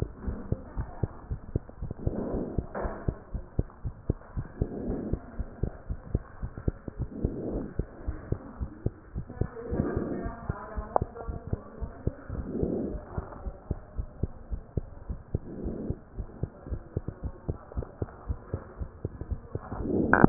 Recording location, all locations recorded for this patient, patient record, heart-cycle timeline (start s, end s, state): tricuspid valve (TV)
aortic valve (AV)+pulmonary valve (PV)+tricuspid valve (TV)+mitral valve (MV)
#Age: Child
#Sex: Male
#Height: 108.0 cm
#Weight: 23.8 kg
#Pregnancy status: False
#Murmur: Absent
#Murmur locations: nan
#Most audible location: nan
#Systolic murmur timing: nan
#Systolic murmur shape: nan
#Systolic murmur grading: nan
#Systolic murmur pitch: nan
#Systolic murmur quality: nan
#Diastolic murmur timing: nan
#Diastolic murmur shape: nan
#Diastolic murmur grading: nan
#Diastolic murmur pitch: nan
#Diastolic murmur quality: nan
#Outcome: Normal
#Campaign: 2015 screening campaign
0.00	0.10	S2
0.10	0.24	diastole
0.24	0.38	S1
0.38	0.48	systole
0.48	0.62	S2
0.62	0.76	diastole
0.76	0.90	S1
0.90	1.00	systole
1.00	1.10	S2
1.10	1.28	diastole
1.28	1.40	S1
1.40	1.52	systole
1.52	1.64	S2
1.64	1.80	diastole
1.80	1.90	S1
1.90	2.00	systole
2.00	2.14	S2
2.14	2.30	diastole
2.30	2.44	S1
2.44	2.54	systole
2.54	2.66	S2
2.66	2.82	diastole
2.82	2.96	S1
2.96	3.04	systole
3.04	3.16	S2
3.16	3.34	diastole
3.34	3.46	S1
3.46	3.54	systole
3.54	3.68	S2
3.68	3.84	diastole
3.84	3.94	S1
3.94	4.04	systole
4.04	4.18	S2
4.18	4.34	diastole
4.34	4.46	S1
4.46	4.58	systole
4.58	4.68	S2
4.68	4.84	diastole
4.84	5.00	S1
5.00	5.10	systole
5.10	5.22	S2
5.22	5.36	diastole
5.36	5.48	S1
5.48	5.58	systole
5.58	5.74	S2
5.74	5.87	diastole
5.87	6.00	S1
6.00	6.10	systole
6.10	6.24	S2
6.24	6.39	diastole
6.39	6.52	S1
6.52	6.66	systole
6.66	6.78	S2
6.78	6.95	diastole
6.95	7.10	S1
7.10	7.22	systole
7.22	7.36	S2
7.36	7.50	diastole
7.50	7.67	S1
7.67	7.76	systole
7.76	7.86	S2
7.86	8.06	diastole
8.06	8.20	S1
8.20	8.30	systole
8.30	8.40	S2
8.40	8.58	diastole
8.58	8.70	S1
8.70	8.82	systole
8.82	8.96	S2
8.96	9.14	diastole
9.14	9.26	S1
9.26	9.38	systole
9.38	9.52	S2
9.52	9.70	diastole
9.70	9.84	S1
9.84	9.94	systole
9.94	10.06	S2
10.06	10.20	diastole
10.20	10.34	S1
10.34	10.48	systole
10.48	10.58	S2
10.58	10.76	diastole
10.76	10.89	S1
10.89	10.99	systole
10.99	11.10	S2
11.10	11.25	diastole
11.25	11.36	S1
11.36	11.48	systole
11.48	11.62	S2
11.62	11.77	diastole
11.77	11.92	S1
11.92	12.04	systole
12.04	12.16	S2
12.16	12.34	diastole
12.34	12.46	S1
12.46	12.54	systole
12.54	12.70	S2
12.70	12.88	diastole
12.88	13.02	S1
13.02	13.16	systole
13.16	13.26	S2
13.26	13.44	diastole
13.44	13.54	S1
13.54	13.66	systole
13.66	13.78	S2
13.78	13.96	diastole
13.96	14.08	S1
14.08	14.20	systole
14.20	14.32	S2
14.32	14.50	diastole
14.50	14.62	S1
14.62	14.76	systole
14.76	14.88	S2
14.88	15.08	diastole
15.08	15.20	S1
15.20	15.30	systole
15.30	15.44	S2
15.44	15.64	diastole
15.64	15.77	S1
15.77	15.84	systole
15.84	15.98	S2
15.98	16.15	diastole
16.15	16.28	S1
16.28	16.40	systole
16.40	16.52	S2
16.52	16.70	diastole
16.70	16.82	S1
16.82	16.92	systole
16.92	17.04	S2
17.04	17.22	diastole
17.22	17.34	S1
17.34	17.48	systole
17.48	17.60	S2
17.60	17.74	diastole
17.74	17.86	S1
17.86	17.98	systole
17.98	18.10	S2
18.10	18.28	diastole
18.28	18.40	S1
18.40	18.52	systole
18.52	18.62	S2
18.62	18.80	diastole
18.80	18.90	S1
18.90	19.00	systole
19.00	19.12	S2
19.12	19.27	diastole